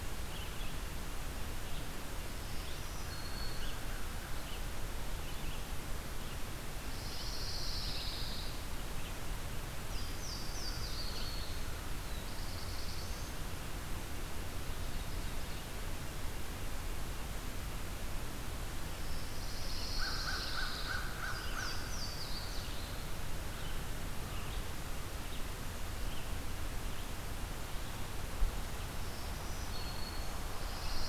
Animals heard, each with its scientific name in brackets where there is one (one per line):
Red-eyed Vireo (Vireo olivaceus)
Louisiana Waterthrush (Parkesia motacilla)
Black-throated Blue Warbler (Setophaga caerulescens)
Pine Warbler (Setophaga pinus)
Black-throated Green Warbler (Setophaga virens)
American Crow (Corvus brachyrhynchos)